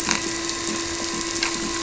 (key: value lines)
label: anthrophony, boat engine
recorder: SoundTrap 300